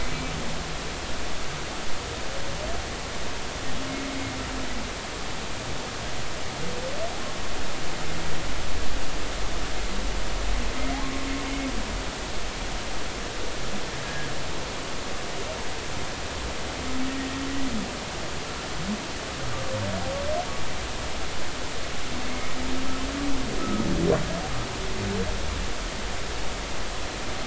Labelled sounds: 14.0	14.3	humpback whale, 1.6 to 1.7 kHz
23.6	23.9	humpback whale, 1.2 to 1.3 kHz

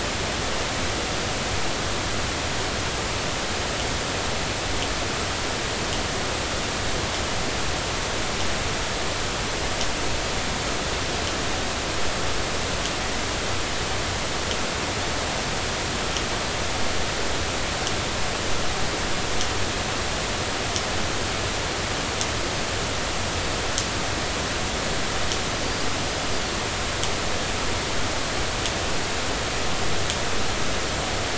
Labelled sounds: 25.6	25.9	small unidentified odontocete, 4.5 to 4.9 kHz

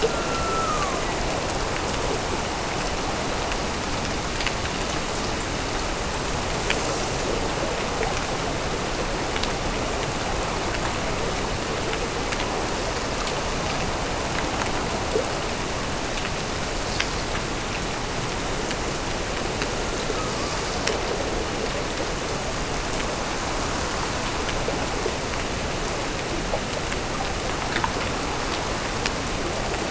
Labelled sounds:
0.0	1.5	killer whale, Bigg's (transient), Gulf of Alaska transient, 0.75 to 2.8 kHz
19.5	21.0	killer whale, Bigg's (transient), Gulf of Alaska transient, 0.45 to 1.5 kHz

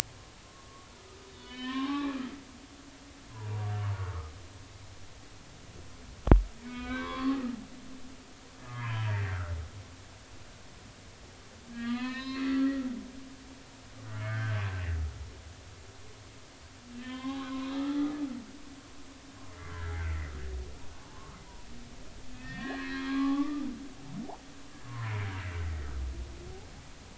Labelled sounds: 0.4	0.9	humpback whale, 1.0 to 1.2 kHz
1.3	2.2	humpback whale, 0.80 to 3.9 kHz
3.3	3.7	humpback whale, 0.83 to 1.1 kHz
6.6	7.4	humpback whale, 0.99 to 3.5 kHz
8.7	9.5	humpback whale, 0.86 to 3.2 kHz
11.7	12.8	humpback whale, 0.93 to 5.1 kHz
14.0	14.5	humpback whale, 1.3 to 2.2 kHz
16.9	18.1	humpback whale, 0.80 to 4.0 kHz
19.6	20.3	humpback whale, 1.3 to 2.1 kHz
22.3	23.7	humpback whale, 0.80 to 4.4 kHz
24.8	25.1	humpback whale, 0.93 to 1.1 kHz

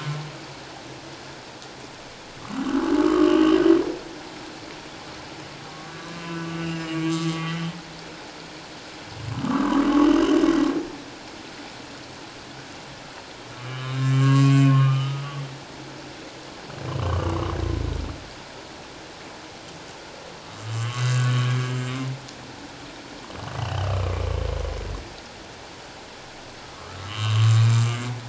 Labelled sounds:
2.4	3.6	humpback whale, 1.0 to 3.2 kHz
5.7	7.7	humpback whale, 1.1 to 6.4 kHz
9.3	10.4	humpback whale, 0.94 to 3.1 kHz
13.6	15.3	humpback whale, 0.91 to 7.5 kHz
16.9	17.4	humpback whale, 1.0 to 3.2 kHz
20.4	21.5	humpback whale, 1.0 to 7.4 kHz
23.6	24.3	humpback whale, 1.1 to 3.2 kHz
26.7	27.6	humpback whale, 1.0 to 7.4 kHz

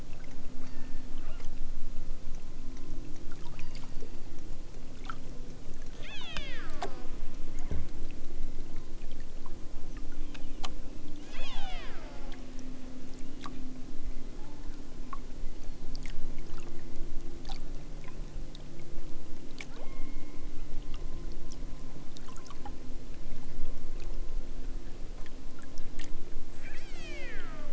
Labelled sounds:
0.6	1.5	killer whale, southern Alaska resident, 0.64 to 5.9 kHz
3.5	4.3	killer whale, southern Alaska resident, 0.73 to 5.1 kHz
5.9	7.1	killer whale, southern Alaska resident, 0.46 to 7.3 kHz
7.4	8.0	killer whale, southern Alaska resident, 1.1 to 2.7 kHz
10.2	10.7	killer whale, southern Alaska resident, 1.6 to 4.0 kHz
11.1	12.3	killer whale, southern Alaska resident, 0.50 to 8.0 kHz
19.8	20.6	killer whale, southern Alaska resident, 0.88 to 2.8 kHz
26.5	27.7	killer whale, southern Alaska resident, 1.1 to 8.0 kHz

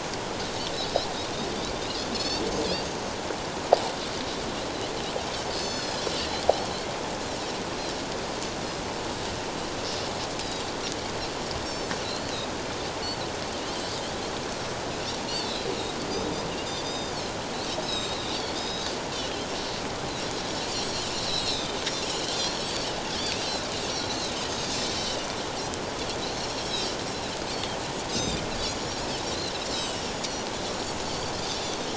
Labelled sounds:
2.1	2.4	Pacific white-sided dolphin, 2.5 to 7.2 kHz
5.5	6.0	Pacific white-sided dolphin, 3.4 to 6.3 kHz
11.6	11.9	Pacific white-sided dolphin, 4.2 to 7.4 kHz
15.3	15.7	Pacific white-sided dolphin, 3.2 to 3.7 kHz
16.8	18.9	Pacific white-sided dolphin, 3.2 to 7.8 kHz
20.7	21.8	Pacific white-sided dolphin, 3.4 to 7.9 kHz
22.1	22.9	Pacific white-sided dolphin, 2.8 to 4.7 kHz
24.5	24.8	Pacific white-sided dolphin, 4.6 to 5.3 kHz
26.4	27.0	Pacific white-sided dolphin, 3.1 to 4.4 kHz
28.1	30.1	Pacific white-sided dolphin, 2.7 to 7.6 kHz
30.7	31.9	Pacific white-sided dolphin, 4.2 to 7.1 kHz

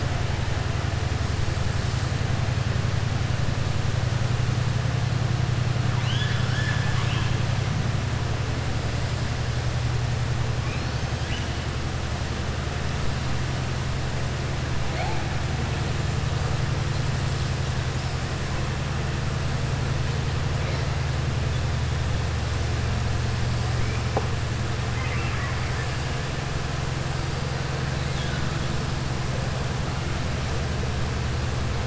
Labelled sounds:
5.9	7.3	killer whale, southern resident, 1.0 to 7.0 kHz
24.9	25.9	killer whale, southern resident, 1.1 to 3.1 kHz
28.0	28.4	killer whale, southern resident, 1.4 to 4.2 kHz

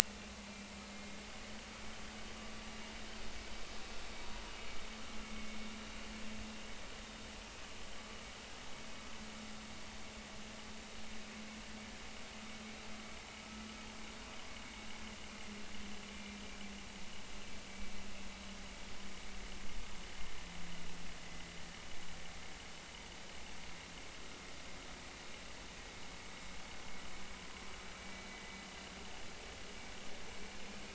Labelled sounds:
0.9	1.2	vessel noise, 2.1 to 2.2 kHz
5.2	5.6	vessel noise, 2.1 to 2.3 kHz
16.1	16.4	vessel noise, 2.3 to 2.4 kHz
29.0	29.2	vessel noise, 2.2 to 2.4 kHz

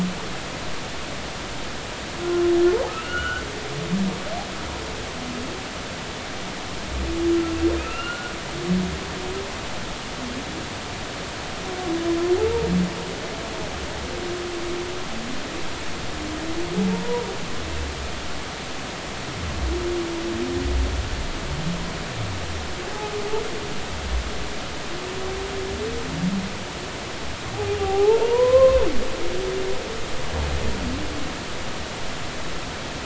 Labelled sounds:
2.9	3.4	humpback whale, 1.3 to 3.1 kHz
7.8	8.3	humpback whale, 1.2 to 2.9 kHz
17.0	17.3	humpback whale, 0.90 to 1.0 kHz
27.5	28.8	humpback whale, 0.80 to 1.1 kHz

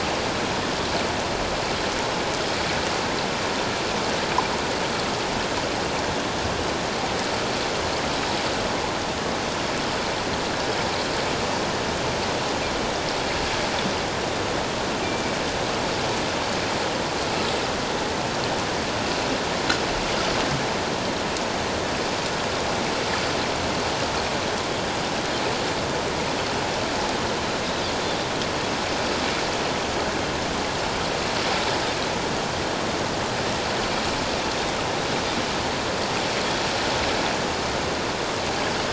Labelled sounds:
15.0	15.4	Pacific white-sided dolphin, 2.2 to 2.4 kHz

